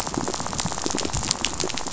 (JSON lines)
{"label": "biophony, rattle", "recorder": "SoundTrap 500"}
{"label": "biophony", "recorder": "SoundTrap 500"}